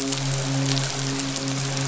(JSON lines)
{"label": "biophony, midshipman", "recorder": "SoundTrap 500"}